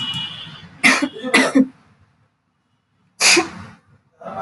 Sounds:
Sneeze